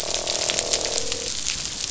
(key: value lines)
label: biophony, croak
recorder: SoundTrap 500